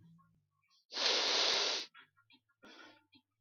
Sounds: Sniff